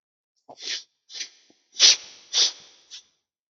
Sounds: Sniff